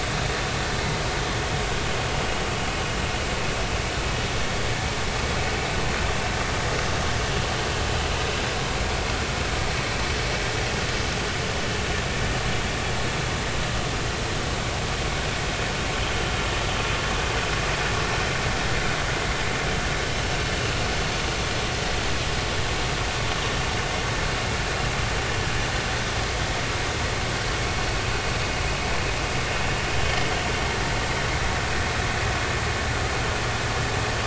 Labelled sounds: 29.9	30.2	vessel noise, 2.9 to 3.3 kHz

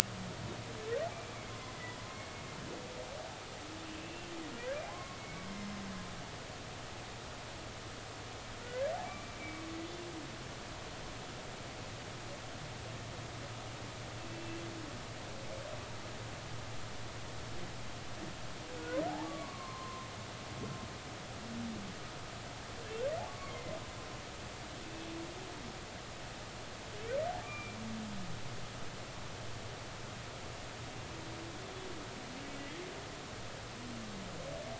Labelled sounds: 2.0	2.3	humpback whale, 0.99 to 2.2 kHz
4.9	5.8	humpback whale, 0.96 to 5.3 kHz
9.0	9.4	humpback whale, 2.2 to 2.5 kHz
18.8	20.1	humpback whale, 0.93 to 4.4 kHz
23.3	23.7	humpback whale, 0.99 to 2.3 kHz
27.4	27.8	humpback whale, 1.1 to 2.5 kHz

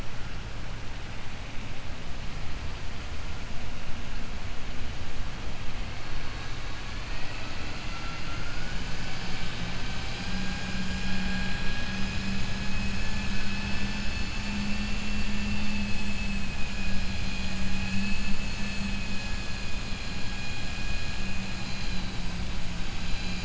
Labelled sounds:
7.1	8.7	vessel noise, 1.3 to 2.8 kHz
10.9	12.4	vessel noise, 0.82 to 4.2 kHz
17.7	18.3	vessel noise, 1.7 to 3.4 kHz

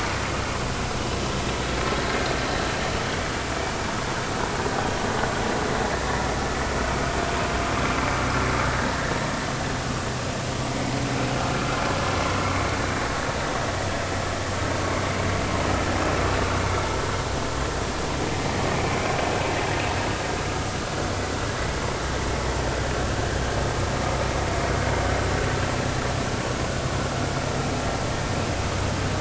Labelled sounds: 20.5	20.8	vessel noise, 1.2 to 1.4 kHz

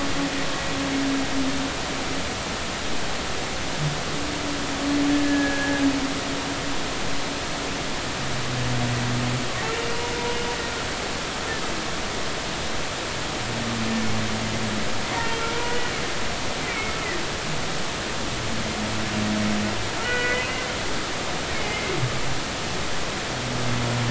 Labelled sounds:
5.1	5.8	humpback whale, 1.6 to 1.8 kHz
15.5	15.8	humpback whale, 0.90 to 1.0 kHz
16.7	17.0	humpback whale, 2.1 to 2.4 kHz
20.0	20.5	humpback whale, 1.3 to 2.6 kHz
21.5	21.9	humpback whale, 2.0 to 2.2 kHz

